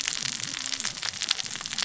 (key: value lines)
label: biophony, cascading saw
recorder: SoundTrap 600 or HydroMoth